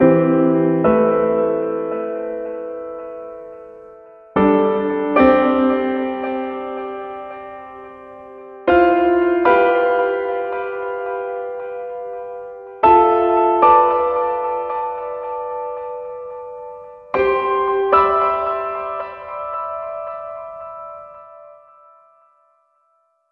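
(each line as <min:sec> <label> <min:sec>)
0:00.0 A piano chord plays briefly and softly with a gentle echo. 0:03.0
0:03.0 A piano note fading away. 0:04.2
0:04.2 A piano chord plays briefly and softly with a gentle echo. 0:07.3
0:07.3 A piano note fading away. 0:08.5
0:08.5 A piano chord plays briefly and softly with a gentle echo. 0:11.7
0:11.8 A piano note fading away. 0:12.7
0:12.7 A piano chord plays briefly and softly with a gentle echo. 0:15.6
0:15.7 A piano note fading away. 0:16.9
0:17.0 A piano chord plays briefly and softly with a gentle echo. 0:21.0
0:21.1 A piano note fading away. 0:23.2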